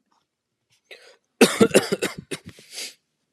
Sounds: Cough